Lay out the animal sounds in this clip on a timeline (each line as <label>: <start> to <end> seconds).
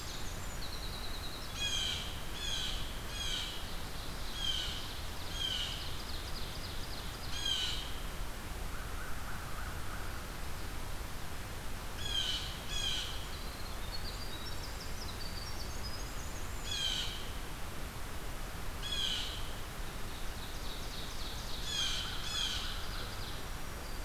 Winter Wren (Troglodytes hiemalis): 0.0 to 1.7 seconds
Blue Jay (Cyanocitta cristata): 1.5 to 5.9 seconds
Ovenbird (Seiurus aurocapilla): 5.5 to 7.4 seconds
Blue Jay (Cyanocitta cristata): 7.2 to 8.3 seconds
American Crow (Corvus brachyrhynchos): 8.5 to 10.3 seconds
Blue Jay (Cyanocitta cristata): 11.8 to 13.3 seconds
Winter Wren (Troglodytes hiemalis): 12.7 to 16.8 seconds
Blue Jay (Cyanocitta cristata): 16.5 to 17.7 seconds
Blue Jay (Cyanocitta cristata): 18.6 to 19.9 seconds
Ovenbird (Seiurus aurocapilla): 19.7 to 23.6 seconds
Blue Jay (Cyanocitta cristata): 21.4 to 23.0 seconds
American Crow (Corvus brachyrhynchos): 21.5 to 23.1 seconds